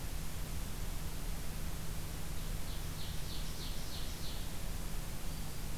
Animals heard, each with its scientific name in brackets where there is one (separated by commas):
Black-throated Green Warbler (Setophaga virens), Ovenbird (Seiurus aurocapilla)